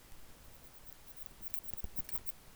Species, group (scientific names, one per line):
Odontura stenoxypha
Orthoptera